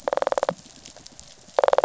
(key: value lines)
label: biophony, rattle
recorder: SoundTrap 500